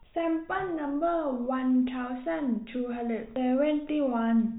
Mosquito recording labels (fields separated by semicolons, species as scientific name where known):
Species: no mosquito; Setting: cup